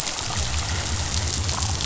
{"label": "biophony", "recorder": "SoundTrap 500"}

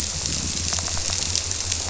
{"label": "biophony", "recorder": "SoundTrap 300"}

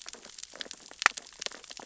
{"label": "biophony, sea urchins (Echinidae)", "recorder": "SoundTrap 600 or HydroMoth"}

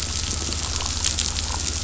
{"label": "anthrophony, boat engine", "recorder": "SoundTrap 500"}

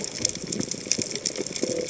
{"label": "biophony", "recorder": "HydroMoth"}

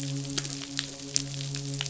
{"label": "biophony, midshipman", "recorder": "SoundTrap 500"}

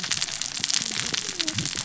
{"label": "biophony, cascading saw", "recorder": "SoundTrap 600 or HydroMoth"}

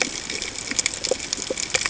{"label": "ambient", "recorder": "HydroMoth"}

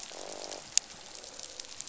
{"label": "biophony, croak", "recorder": "SoundTrap 500"}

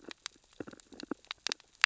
{"label": "biophony, sea urchins (Echinidae)", "recorder": "SoundTrap 600 or HydroMoth"}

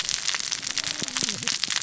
{"label": "biophony, cascading saw", "recorder": "SoundTrap 600 or HydroMoth"}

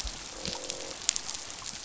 {"label": "biophony, croak", "recorder": "SoundTrap 500"}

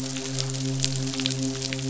{"label": "biophony, midshipman", "recorder": "SoundTrap 500"}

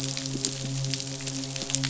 {"label": "biophony, midshipman", "recorder": "SoundTrap 500"}
{"label": "biophony", "recorder": "SoundTrap 500"}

